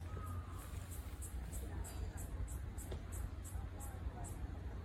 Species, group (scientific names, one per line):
Yoyetta celis
Cicadidae